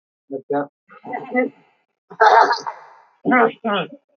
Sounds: Throat clearing